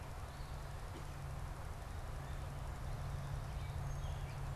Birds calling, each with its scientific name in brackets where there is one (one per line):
Song Sparrow (Melospiza melodia)